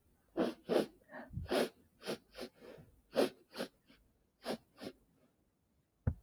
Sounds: Sniff